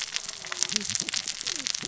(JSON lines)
{"label": "biophony, cascading saw", "recorder": "SoundTrap 600 or HydroMoth"}